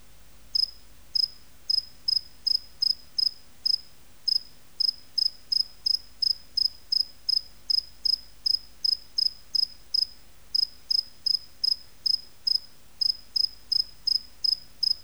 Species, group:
Gryllus bimaculatus, Orthoptera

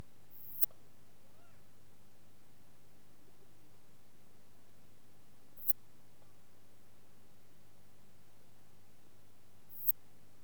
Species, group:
Poecilimon affinis, Orthoptera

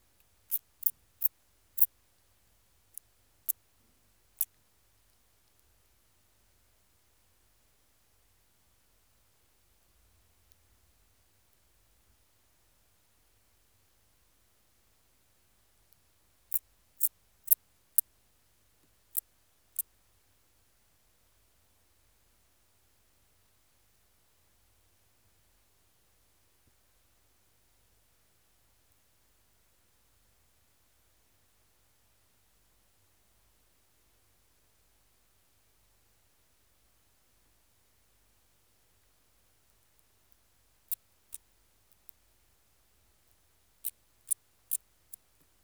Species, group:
Stenobothrus lineatus, Orthoptera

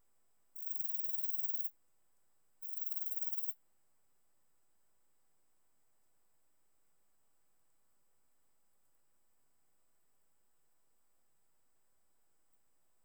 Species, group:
Antaxius hispanicus, Orthoptera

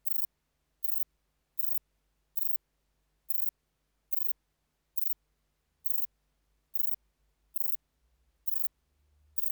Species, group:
Rhacocleis poneli, Orthoptera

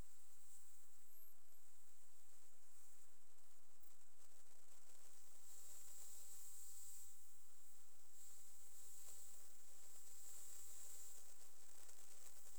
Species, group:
Platycleis albopunctata, Orthoptera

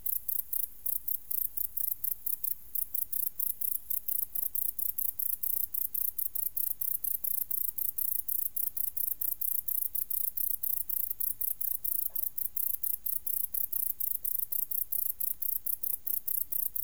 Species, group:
Decticus verrucivorus, Orthoptera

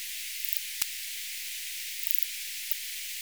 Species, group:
Poecilimon tessellatus, Orthoptera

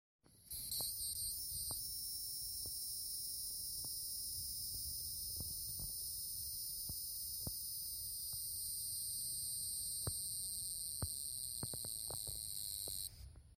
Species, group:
Neocicada hieroglyphica, Cicadidae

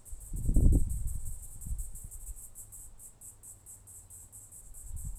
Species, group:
Yoyetta celis, Cicadidae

